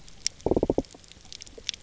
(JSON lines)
{"label": "biophony", "recorder": "SoundTrap 300"}